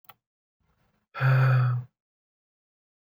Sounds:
Sigh